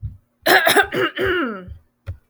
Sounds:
Throat clearing